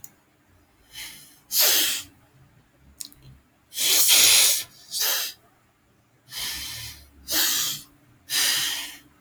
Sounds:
Sniff